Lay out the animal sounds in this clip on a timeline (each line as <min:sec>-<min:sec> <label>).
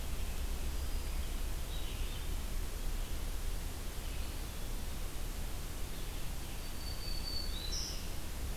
0:00.0-0:06.3 Red-eyed Vireo (Vireo olivaceus)
0:00.5-0:01.3 Black-throated Green Warbler (Setophaga virens)
0:06.3-0:08.3 Black-throated Green Warbler (Setophaga virens)